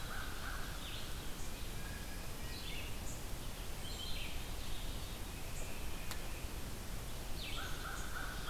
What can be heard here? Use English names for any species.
American Crow, Red-eyed Vireo, unknown mammal